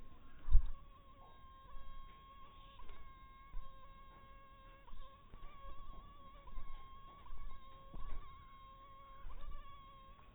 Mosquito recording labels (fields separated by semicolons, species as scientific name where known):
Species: mosquito; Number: one; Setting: cup